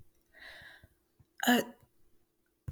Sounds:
Sneeze